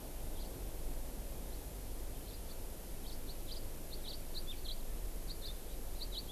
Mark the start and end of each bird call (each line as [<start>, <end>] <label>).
[2.97, 3.17] House Finch (Haemorhous mexicanus)
[3.47, 3.57] House Finch (Haemorhous mexicanus)
[4.07, 4.17] House Finch (Haemorhous mexicanus)
[4.67, 4.77] House Finch (Haemorhous mexicanus)
[5.27, 5.47] House Finch (Haemorhous mexicanus)
[5.97, 6.27] House Finch (Haemorhous mexicanus)